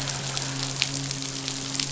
{"label": "biophony, midshipman", "recorder": "SoundTrap 500"}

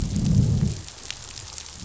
{"label": "biophony, growl", "recorder": "SoundTrap 500"}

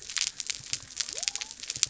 {"label": "biophony", "recorder": "SoundTrap 300"}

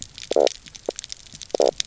{"label": "biophony, knock croak", "recorder": "SoundTrap 300"}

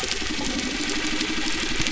{"label": "anthrophony, boat engine", "recorder": "SoundTrap 300"}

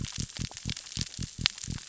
{"label": "biophony", "recorder": "SoundTrap 600 or HydroMoth"}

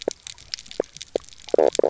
{"label": "biophony, knock croak", "recorder": "SoundTrap 300"}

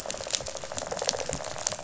{"label": "biophony, rattle response", "recorder": "SoundTrap 500"}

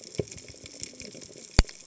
{"label": "biophony, cascading saw", "recorder": "HydroMoth"}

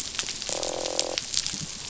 {"label": "biophony, croak", "recorder": "SoundTrap 500"}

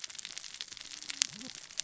{"label": "biophony, cascading saw", "recorder": "SoundTrap 600 or HydroMoth"}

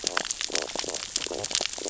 {"label": "biophony, stridulation", "recorder": "SoundTrap 600 or HydroMoth"}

